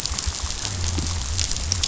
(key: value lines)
label: biophony
recorder: SoundTrap 500